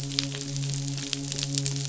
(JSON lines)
{"label": "biophony, midshipman", "recorder": "SoundTrap 500"}